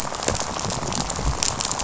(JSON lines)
{"label": "biophony, rattle", "recorder": "SoundTrap 500"}